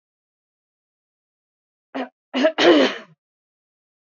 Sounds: Throat clearing